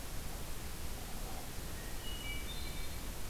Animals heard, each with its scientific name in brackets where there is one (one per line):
Hermit Thrush (Catharus guttatus)